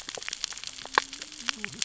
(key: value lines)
label: biophony, cascading saw
recorder: SoundTrap 600 or HydroMoth